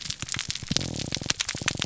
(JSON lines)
{"label": "biophony", "recorder": "SoundTrap 300"}